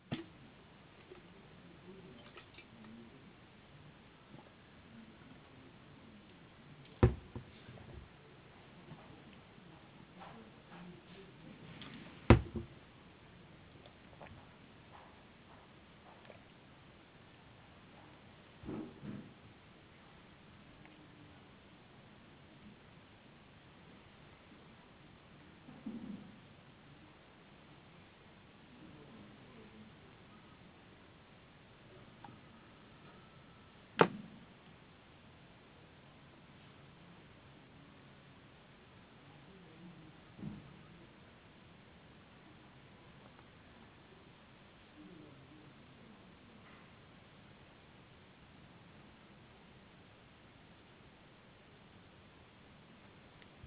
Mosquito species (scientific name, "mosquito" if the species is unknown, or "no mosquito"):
no mosquito